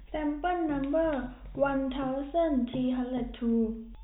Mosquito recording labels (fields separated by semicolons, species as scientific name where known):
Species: no mosquito; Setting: cup